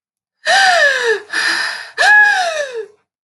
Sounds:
Sigh